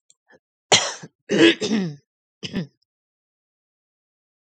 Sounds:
Throat clearing